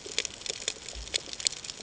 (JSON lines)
{"label": "ambient", "recorder": "HydroMoth"}